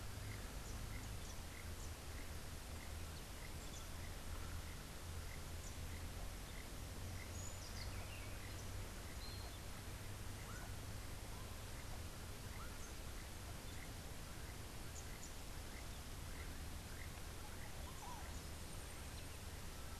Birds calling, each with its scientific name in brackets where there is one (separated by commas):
Yellow-crowned Euphonia (Euphonia luteicapilla), Montezuma Oropendola (Psarocolius montezuma), Keel-billed Toucan (Ramphastos sulfuratus)